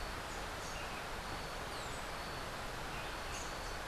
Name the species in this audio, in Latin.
Pachyramphus aglaiae